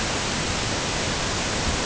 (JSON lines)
{"label": "ambient", "recorder": "HydroMoth"}